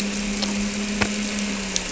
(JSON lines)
{"label": "anthrophony, boat engine", "recorder": "SoundTrap 300"}